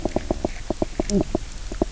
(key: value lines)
label: biophony, knock croak
recorder: SoundTrap 300